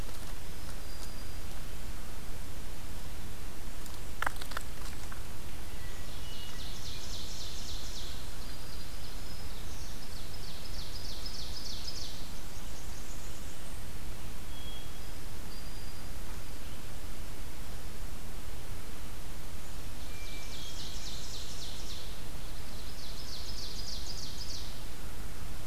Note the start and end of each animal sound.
0.2s-1.6s: Black-throated Green Warbler (Setophaga virens)
5.6s-6.7s: Hermit Thrush (Catharus guttatus)
5.9s-8.2s: Ovenbird (Seiurus aurocapilla)
8.4s-10.0s: Black-throated Green Warbler (Setophaga virens)
9.8s-12.4s: Ovenbird (Seiurus aurocapilla)
11.9s-14.0s: Blackburnian Warbler (Setophaga fusca)
14.4s-15.3s: Hermit Thrush (Catharus guttatus)
15.1s-16.3s: Black-throated Green Warbler (Setophaga virens)
19.6s-25.0s: Ovenbird (Seiurus aurocapilla)
19.9s-21.4s: Hermit Thrush (Catharus guttatus)
20.2s-21.8s: Blackburnian Warbler (Setophaga fusca)

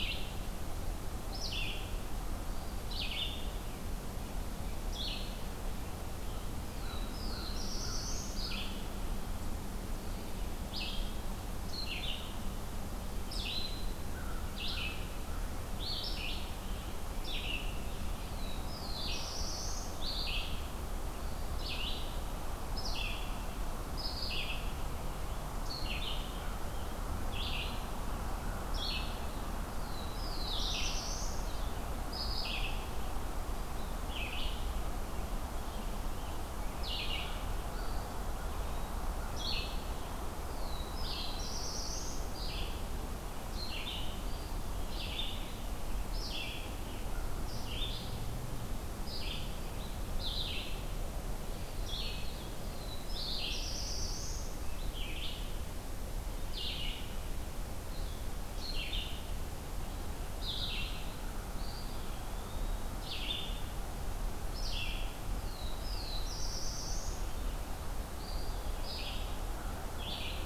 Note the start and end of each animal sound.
0.0s-3.4s: Red-eyed Vireo (Vireo olivaceus)
4.7s-63.5s: Red-eyed Vireo (Vireo olivaceus)
6.6s-8.6s: Black-throated Blue Warbler (Setophaga caerulescens)
6.7s-8.6s: American Crow (Corvus brachyrhynchos)
13.9s-15.8s: American Crow (Corvus brachyrhynchos)
18.2s-20.1s: Black-throated Blue Warbler (Setophaga caerulescens)
29.6s-31.7s: Black-throated Blue Warbler (Setophaga caerulescens)
37.6s-39.1s: Eastern Wood-Pewee (Contopus virens)
40.3s-42.5s: Black-throated Blue Warbler (Setophaga caerulescens)
52.5s-54.7s: Black-throated Blue Warbler (Setophaga caerulescens)
61.4s-63.0s: Eastern Wood-Pewee (Contopus virens)
64.4s-70.5s: Red-eyed Vireo (Vireo olivaceus)
65.4s-67.3s: Black-throated Blue Warbler (Setophaga caerulescens)
67.9s-69.1s: Eastern Wood-Pewee (Contopus virens)

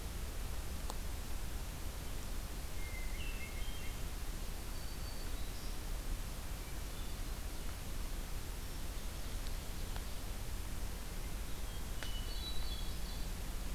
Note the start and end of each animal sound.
2.7s-4.1s: Hermit Thrush (Catharus guttatus)
4.6s-5.8s: Black-throated Green Warbler (Setophaga virens)
6.5s-7.6s: Hermit Thrush (Catharus guttatus)
8.5s-9.6s: Hermit Thrush (Catharus guttatus)
8.8s-10.4s: Ovenbird (Seiurus aurocapilla)
11.9s-13.7s: Hermit Thrush (Catharus guttatus)

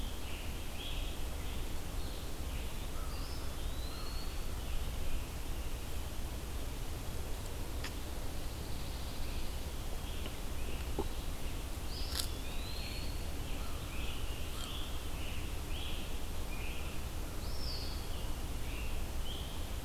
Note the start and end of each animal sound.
0.0s-1.8s: Scarlet Tanager (Piranga olivacea)
0.0s-19.8s: Red-eyed Vireo (Vireo olivaceus)
3.0s-4.6s: Eastern Wood-Pewee (Contopus virens)
8.1s-9.9s: Pine Warbler (Setophaga pinus)
11.8s-13.3s: Eastern Wood-Pewee (Contopus virens)
13.5s-14.8s: American Crow (Corvus brachyrhynchos)
13.8s-17.0s: Scarlet Tanager (Piranga olivacea)
17.3s-18.1s: Eastern Wood-Pewee (Contopus virens)

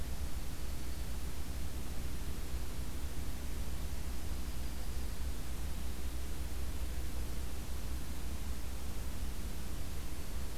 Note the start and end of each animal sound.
3.9s-5.3s: Yellow-rumped Warbler (Setophaga coronata)

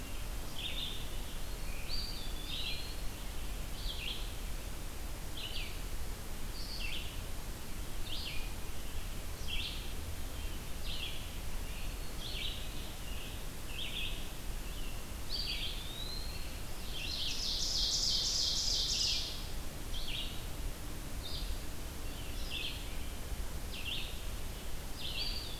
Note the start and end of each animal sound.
0.0s-11.3s: Red-eyed Vireo (Vireo olivaceus)
1.7s-3.2s: Eastern Wood-Pewee (Contopus virens)
11.9s-25.6s: Red-eyed Vireo (Vireo olivaceus)
15.2s-16.6s: Eastern Wood-Pewee (Contopus virens)
16.8s-19.6s: Ovenbird (Seiurus aurocapilla)
24.9s-25.6s: Eastern Wood-Pewee (Contopus virens)

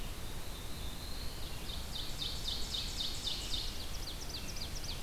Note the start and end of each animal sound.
0.0s-1.5s: Black-throated Blue Warbler (Setophaga caerulescens)
1.4s-5.0s: Ovenbird (Seiurus aurocapilla)

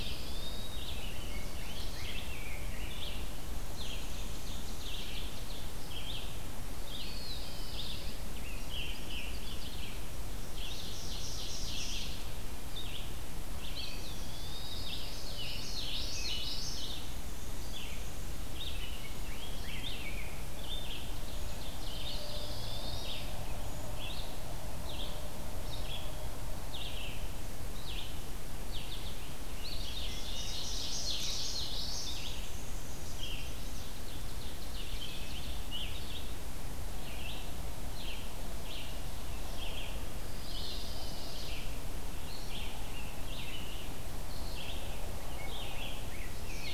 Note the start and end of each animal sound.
0.0s-0.7s: Pine Warbler (Setophaga pinus)
0.0s-0.9s: Eastern Wood-Pewee (Contopus virens)
0.0s-46.7s: Red-eyed Vireo (Vireo olivaceus)
0.5s-3.0s: Scarlet Tanager (Piranga olivacea)
0.8s-2.3s: Chestnut-sided Warbler (Setophaga pensylvanica)
3.3s-5.1s: Black-and-white Warbler (Mniotilta varia)
6.8s-8.2s: Pine Warbler (Setophaga pinus)
6.8s-7.9s: Eastern Wood-Pewee (Contopus virens)
7.9s-9.8s: Scarlet Tanager (Piranga olivacea)
8.4s-9.8s: Chestnut-sided Warbler (Setophaga pensylvanica)
10.2s-12.3s: Ovenbird (Seiurus aurocapilla)
13.6s-15.0s: Eastern Wood-Pewee (Contopus virens)
14.2s-15.8s: Pine Warbler (Setophaga pinus)
14.9s-16.8s: Common Yellowthroat (Geothlypis trichas)
16.7s-18.5s: Black-and-white Warbler (Mniotilta varia)
18.5s-20.5s: Scarlet Tanager (Piranga olivacea)
20.8s-23.0s: Ovenbird (Seiurus aurocapilla)
21.9s-23.3s: Eastern Wood-Pewee (Contopus virens)
28.9s-31.8s: Scarlet Tanager (Piranga olivacea)
29.3s-30.8s: Eastern Wood-Pewee (Contopus virens)
29.6s-31.5s: Ovenbird (Seiurus aurocapilla)
30.3s-32.1s: Common Yellowthroat (Geothlypis trichas)
32.0s-33.3s: Black-and-white Warbler (Mniotilta varia)
33.0s-33.9s: Chestnut-sided Warbler (Setophaga pensylvanica)
33.4s-35.7s: Ovenbird (Seiurus aurocapilla)
34.5s-36.4s: Scarlet Tanager (Piranga olivacea)
40.2s-41.0s: Eastern Wood-Pewee (Contopus virens)
40.2s-41.6s: Pine Warbler (Setophaga pinus)
42.0s-44.0s: Scarlet Tanager (Piranga olivacea)
45.1s-46.7s: Scarlet Tanager (Piranga olivacea)

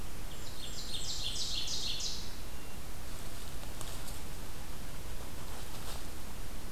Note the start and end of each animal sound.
0.1s-2.4s: Ovenbird (Seiurus aurocapilla)
0.2s-1.6s: Blackburnian Warbler (Setophaga fusca)

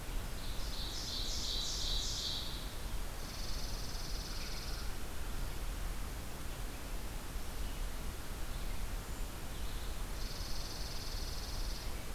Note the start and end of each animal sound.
0.1s-2.8s: Ovenbird (Seiurus aurocapilla)
3.0s-5.0s: Chipping Sparrow (Spizella passerina)
8.9s-12.1s: Brown Creeper (Certhia americana)
9.9s-11.9s: Chipping Sparrow (Spizella passerina)

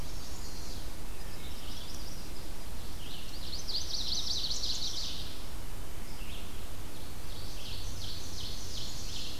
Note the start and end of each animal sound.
0.0s-1.0s: Northern Parula (Setophaga americana)
0.0s-9.4s: Red-eyed Vireo (Vireo olivaceus)
1.1s-1.8s: Wood Thrush (Hylocichla mustelina)
1.2s-2.6s: Chestnut-sided Warbler (Setophaga pensylvanica)
2.9s-5.6s: Chestnut-sided Warbler (Setophaga pensylvanica)
3.5s-5.5s: Ovenbird (Seiurus aurocapilla)
6.8s-9.4s: Ovenbird (Seiurus aurocapilla)

